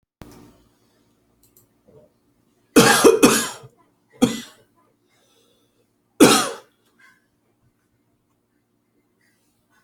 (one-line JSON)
{"expert_labels": [{"quality": "good", "cough_type": "dry", "dyspnea": false, "wheezing": false, "stridor": false, "choking": false, "congestion": false, "nothing": true, "diagnosis": "upper respiratory tract infection", "severity": "mild"}], "age": 40, "gender": "male", "respiratory_condition": false, "fever_muscle_pain": false, "status": "healthy"}